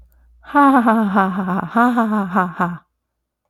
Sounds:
Laughter